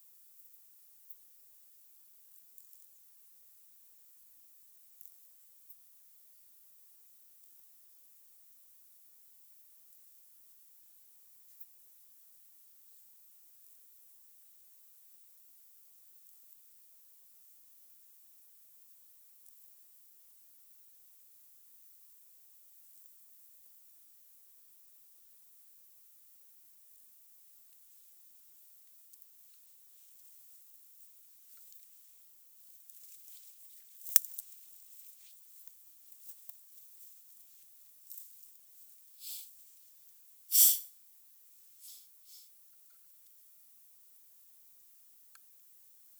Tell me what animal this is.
Stenobothrus rubicundulus, an orthopteran